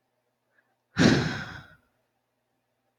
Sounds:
Sigh